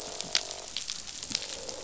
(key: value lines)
label: biophony, croak
recorder: SoundTrap 500

label: biophony
recorder: SoundTrap 500